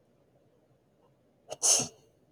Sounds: Sneeze